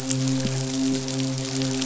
{"label": "biophony, midshipman", "recorder": "SoundTrap 500"}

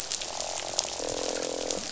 {"label": "biophony, croak", "recorder": "SoundTrap 500"}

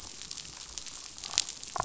{"label": "biophony, damselfish", "recorder": "SoundTrap 500"}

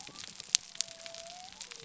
{"label": "biophony", "recorder": "SoundTrap 300"}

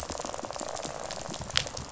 {"label": "biophony, rattle", "recorder": "SoundTrap 500"}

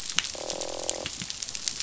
{"label": "biophony, croak", "recorder": "SoundTrap 500"}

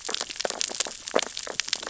{"label": "biophony, sea urchins (Echinidae)", "recorder": "SoundTrap 600 or HydroMoth"}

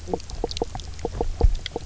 {"label": "biophony, knock croak", "recorder": "SoundTrap 300"}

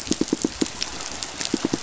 {"label": "biophony, pulse", "recorder": "SoundTrap 500"}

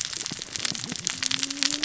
{"label": "biophony, cascading saw", "recorder": "SoundTrap 600 or HydroMoth"}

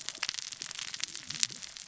{"label": "biophony, cascading saw", "recorder": "SoundTrap 600 or HydroMoth"}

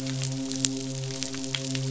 {"label": "biophony, midshipman", "recorder": "SoundTrap 500"}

